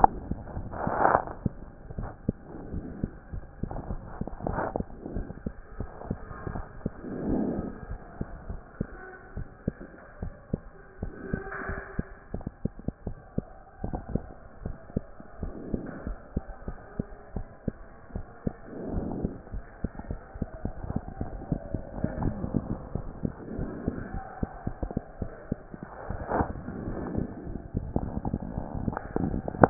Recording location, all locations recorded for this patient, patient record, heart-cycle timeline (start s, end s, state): mitral valve (MV)
aortic valve (AV)+pulmonary valve (PV)+tricuspid valve (TV)+mitral valve (MV)
#Age: Child
#Sex: Female
#Height: 106.0 cm
#Weight: 17.4 kg
#Pregnancy status: False
#Murmur: Absent
#Murmur locations: nan
#Most audible location: nan
#Systolic murmur timing: nan
#Systolic murmur shape: nan
#Systolic murmur grading: nan
#Systolic murmur pitch: nan
#Systolic murmur quality: nan
#Diastolic murmur timing: nan
#Diastolic murmur shape: nan
#Diastolic murmur grading: nan
#Diastolic murmur pitch: nan
#Diastolic murmur quality: nan
#Outcome: Abnormal
#Campaign: 2014 screening campaign
0.00	8.18	unannotated
8.18	8.26	S2
8.26	8.48	diastole
8.48	8.60	S1
8.60	8.80	systole
8.80	8.88	S2
8.88	9.36	diastole
9.36	9.48	S1
9.48	9.66	systole
9.66	9.74	S2
9.74	10.22	diastole
10.22	10.34	S1
10.34	10.52	systole
10.52	10.60	S2
10.60	11.02	diastole
11.02	11.12	S1
11.12	11.32	systole
11.32	11.42	S2
11.42	11.68	diastole
11.68	11.80	S1
11.80	11.96	systole
11.96	12.06	S2
12.06	12.34	diastole
12.34	12.44	S1
12.44	12.64	systole
12.64	12.72	S2
12.72	13.06	diastole
13.06	13.16	S1
13.16	13.36	systole
13.36	13.44	S2
13.44	13.84	diastole
13.84	13.98	S1
13.98	14.12	systole
14.12	14.22	S2
14.22	14.64	diastole
14.64	14.76	S1
14.76	14.94	systole
14.94	15.04	S2
15.04	15.42	diastole
15.42	15.54	S1
15.54	15.70	systole
15.70	15.82	S2
15.82	16.06	diastole
16.06	16.18	S1
16.18	16.34	systole
16.34	16.44	S2
16.44	16.66	diastole
16.66	16.76	S1
16.76	16.98	systole
16.98	17.06	S2
17.06	17.34	diastole
17.34	17.46	S1
17.46	17.66	systole
17.66	17.76	S2
17.76	18.14	diastole
18.14	18.24	S1
18.24	18.44	systole
18.44	18.54	S2
18.54	18.90	diastole
18.90	19.08	S1
19.08	19.22	systole
19.22	19.32	S2
19.32	19.52	diastole
19.52	19.64	S1
19.64	19.82	systole
19.82	19.90	S2
19.90	20.08	diastole
20.08	20.20	S1
20.20	20.38	systole
20.38	20.48	S2
20.48	20.64	diastole
20.64	20.74	S1
20.74	20.90	systole
20.90	20.98	S2
20.98	21.20	diastole
21.20	21.26	S1
21.26	21.50	systole
21.50	21.60	S2
21.60	21.72	diastole
21.72	21.80	S1
21.80	21.99	systole
21.99	22.09	S2
22.09	22.22	diastole
22.22	22.31	S1
22.31	22.54	systole
22.54	22.61	S2
22.61	22.94	diastole
22.94	23.03	S1
23.03	23.22	systole
23.22	23.32	S2
23.32	23.56	diastole
23.56	23.70	S1
23.70	23.86	systole
23.86	23.96	S2
23.96	24.12	diastole
24.12	24.24	S1
24.24	24.40	systole
24.40	24.50	S2
24.50	24.65	diastole
24.65	24.72	S1
24.72	24.81	systole
24.81	25.00	S2
25.00	25.20	diastole
25.20	25.30	S1
25.30	25.50	systole
25.50	25.58	S2
25.58	25.73	diastole
25.73	25.77	S1
25.77	26.08	systole
26.08	26.18	S2
26.18	26.24	diastole
26.24	29.70	unannotated